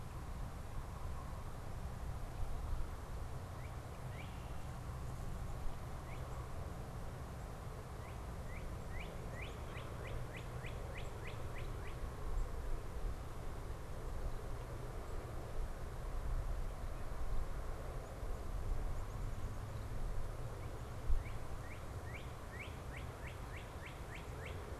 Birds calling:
Northern Cardinal (Cardinalis cardinalis)

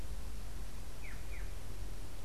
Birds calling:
Black-chested Jay (Cyanocorax affinis)

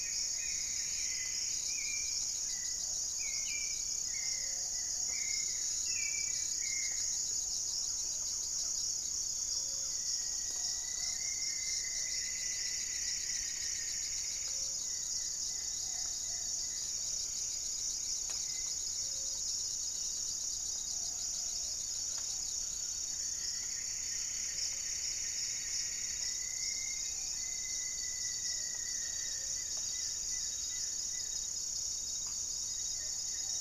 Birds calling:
Goeldi's Antbird (Akletos goeldii), Hauxwell's Thrush (Turdus hauxwelli), Gray-fronted Dove (Leptotila rufaxilla), Thrush-like Wren (Campylorhynchus turdinus), Plumbeous Antbird (Myrmelastes hyperythrus), Rufous-fronted Antthrush (Formicarius rufifrons), unidentified bird, Buff-breasted Wren (Cantorchilus leucotis), Plumbeous Pigeon (Patagioenas plumbea)

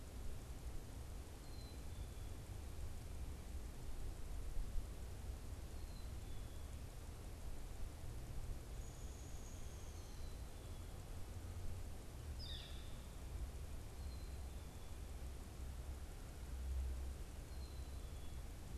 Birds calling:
Downy Woodpecker (Dryobates pubescens), Northern Flicker (Colaptes auratus), Black-capped Chickadee (Poecile atricapillus)

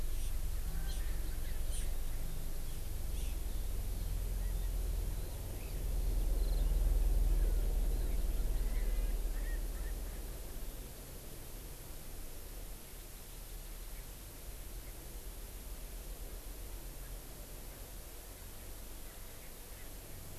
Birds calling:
Erckel's Francolin (Pternistis erckelii)

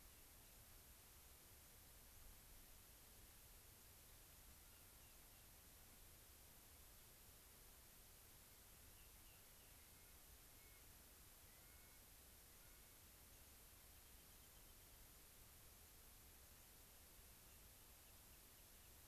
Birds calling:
White-crowned Sparrow (Zonotrichia leucophrys), Rock Wren (Salpinctes obsoletus), Clark's Nutcracker (Nucifraga columbiana)

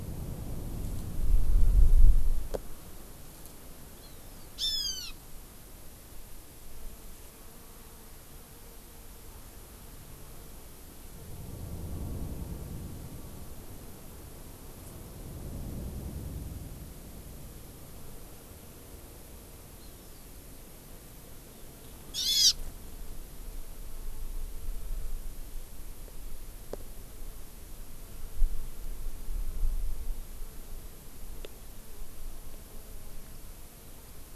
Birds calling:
Hawaii Amakihi (Chlorodrepanis virens), Hawaiian Hawk (Buteo solitarius)

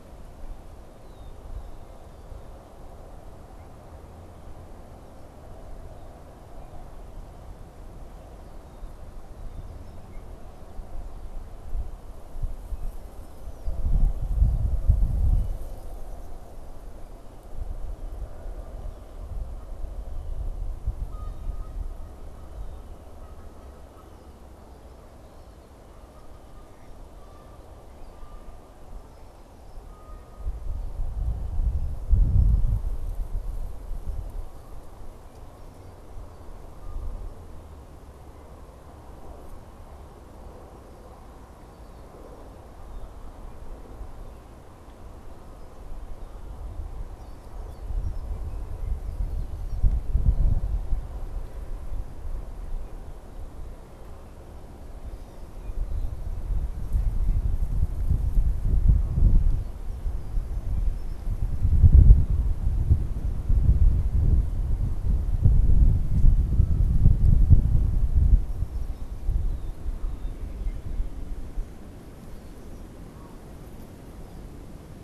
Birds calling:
Red-winged Blackbird (Agelaius phoeniceus), Canada Goose (Branta canadensis)

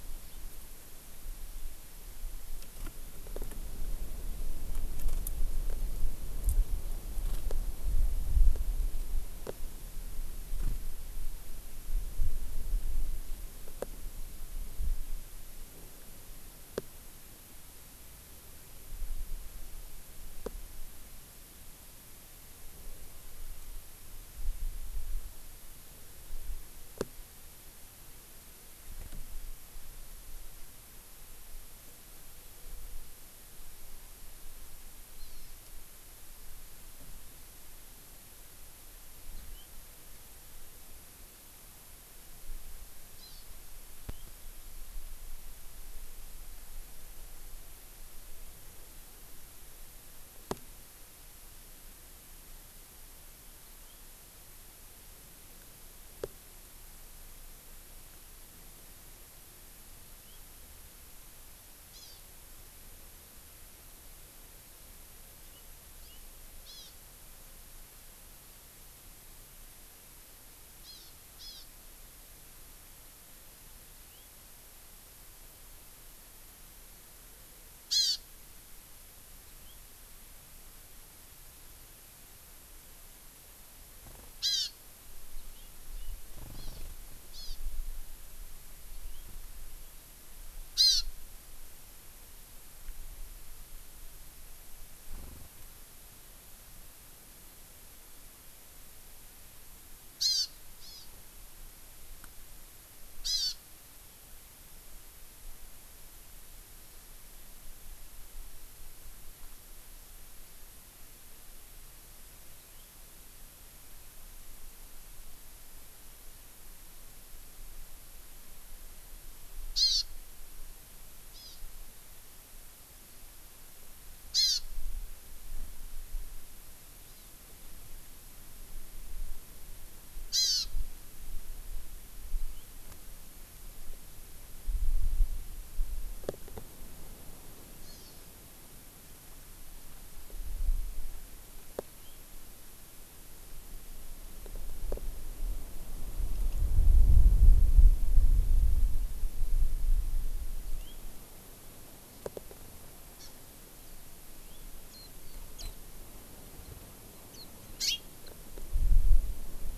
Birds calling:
House Finch (Haemorhous mexicanus), Hawaii Amakihi (Chlorodrepanis virens), Warbling White-eye (Zosterops japonicus)

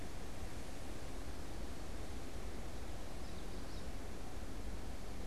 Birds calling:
Common Yellowthroat (Geothlypis trichas)

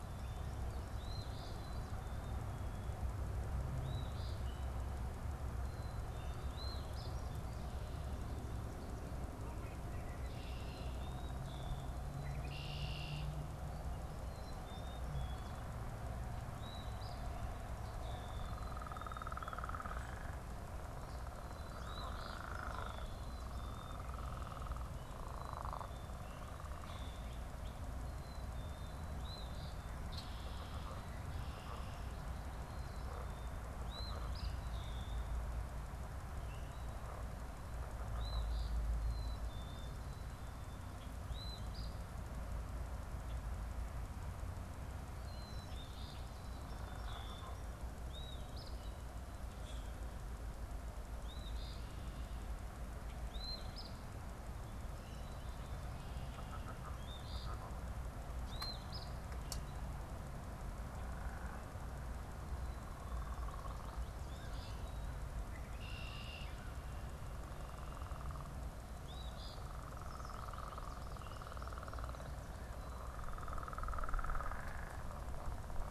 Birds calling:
Eastern Phoebe (Sayornis phoebe), Black-capped Chickadee (Poecile atricapillus), American Goldfinch (Spinus tristis), Common Grackle (Quiscalus quiscula), Red-winged Blackbird (Agelaius phoeniceus)

